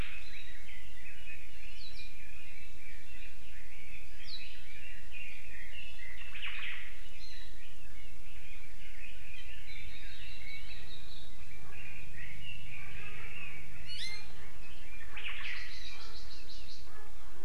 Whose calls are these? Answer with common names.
Red-billed Leiothrix, Omao, Hawaii Amakihi